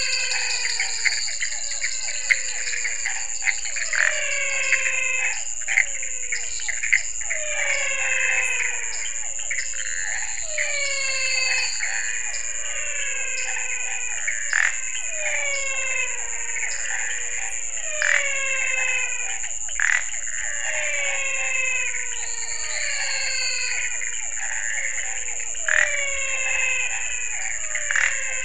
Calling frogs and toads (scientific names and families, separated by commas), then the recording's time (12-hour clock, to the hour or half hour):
Elachistocleis matogrosso (Microhylidae), Dendropsophus nanus (Hylidae), Leptodactylus podicipinus (Leptodactylidae), Physalaemus albonotatus (Leptodactylidae), Physalaemus cuvieri (Leptodactylidae), Pithecopus azureus (Hylidae), Rhinella scitula (Bufonidae)
~7pm